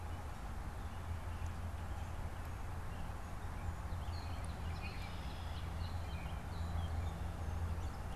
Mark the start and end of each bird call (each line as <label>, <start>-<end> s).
Red-winged Blackbird (Agelaius phoeniceus), 4.5-5.6 s